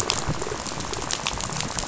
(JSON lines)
{"label": "biophony, rattle", "recorder": "SoundTrap 500"}